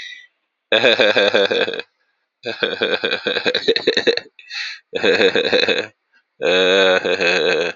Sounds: Laughter